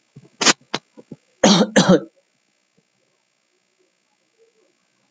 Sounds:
Cough